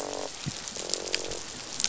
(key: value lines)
label: biophony, croak
recorder: SoundTrap 500